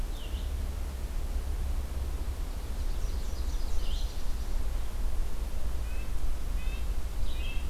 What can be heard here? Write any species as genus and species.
Vireo olivaceus, Leiothlypis ruficapilla, Sitta canadensis